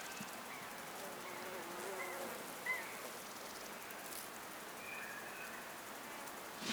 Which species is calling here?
Albarracinia zapaterii